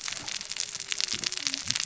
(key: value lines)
label: biophony, cascading saw
recorder: SoundTrap 600 or HydroMoth